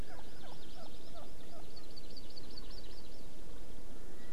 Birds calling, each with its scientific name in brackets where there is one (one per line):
Hawaii Amakihi (Chlorodrepanis virens)